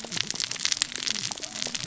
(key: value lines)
label: biophony, cascading saw
recorder: SoundTrap 600 or HydroMoth